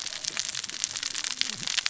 {"label": "biophony, cascading saw", "recorder": "SoundTrap 600 or HydroMoth"}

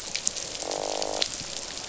{"label": "biophony, croak", "recorder": "SoundTrap 500"}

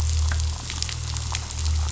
{"label": "anthrophony, boat engine", "recorder": "SoundTrap 500"}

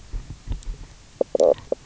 {"label": "biophony, knock croak", "recorder": "SoundTrap 300"}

